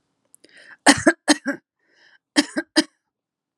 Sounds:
Cough